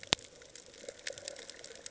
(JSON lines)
{"label": "ambient", "recorder": "HydroMoth"}